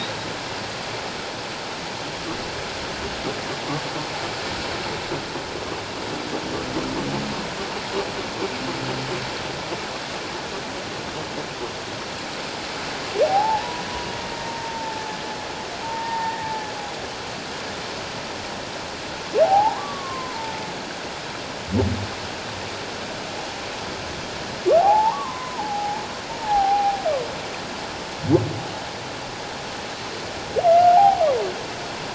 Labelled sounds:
13.3	13.8	humpback whale, 0.78 to 1.0 kHz
14.4	15.1	humpback whale, 0.84 to 0.97 kHz
15.8	16.4	humpback whale, 0.78 to 1.9 kHz
19.4	20.4	humpback whale, 0.78 to 1.2 kHz
24.8	27.0	humpback whale, 0.78 to 1.2 kHz
30.8	31.2	humpback whale, 0.78 to 0.94 kHz

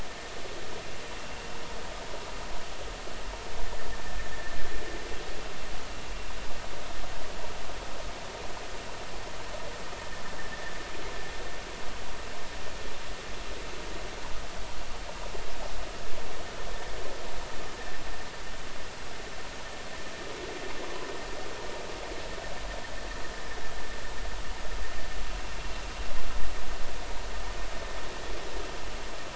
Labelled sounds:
4.3	4.6	vessel noise, 1.7 to 1.9 kHz

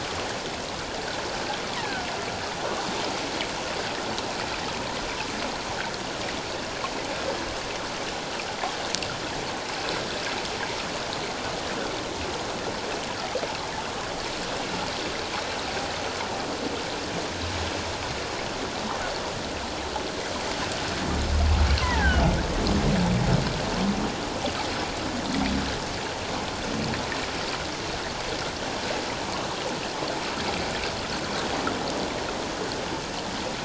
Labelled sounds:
1.8	2.0	killer whale, offshore, call OFF17, 1.4 to 2.1 kHz
21.8	22.3	killer whale, offshore, call OFF17, 0.78 to 3.2 kHz

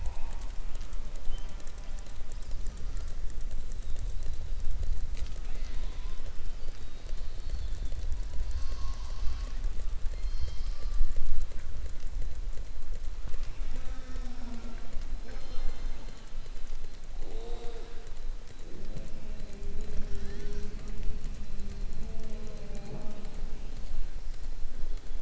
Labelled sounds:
17.3	17.9	killer whale, southern resident, 3.5 to 4.6 kHz

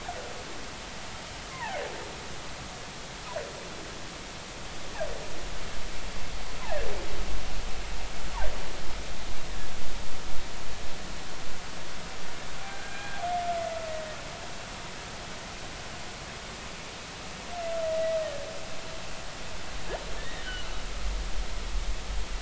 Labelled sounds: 1.5	1.8	humpback whale, 0.80 to 2.2 kHz
12.7	13.2	humpback whale, 1.5 to 1.7 kHz
17.8	18.2	humpback whale, 1.9 to 2.0 kHz
20.2	20.5	humpback whale, 1.7 to 2.0 kHz

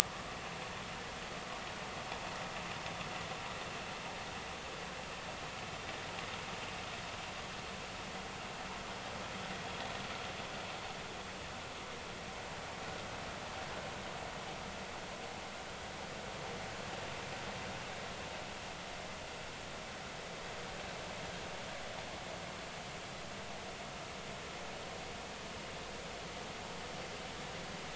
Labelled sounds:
0.0	0.3	vessel noise, 1.2 to 1.3 kHz

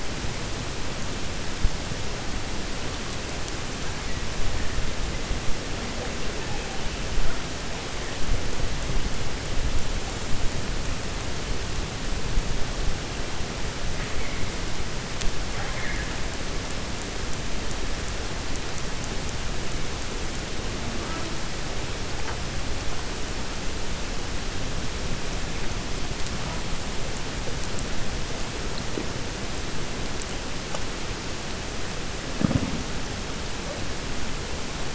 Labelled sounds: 15.5	16.1	killer whale, 0.64 to 2.3 kHz

